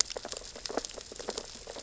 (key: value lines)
label: biophony, sea urchins (Echinidae)
recorder: SoundTrap 600 or HydroMoth